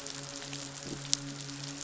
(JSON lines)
{"label": "biophony, midshipman", "recorder": "SoundTrap 500"}
{"label": "biophony", "recorder": "SoundTrap 500"}